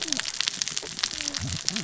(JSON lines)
{"label": "biophony, cascading saw", "recorder": "SoundTrap 600 or HydroMoth"}